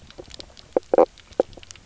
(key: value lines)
label: biophony, knock croak
recorder: SoundTrap 300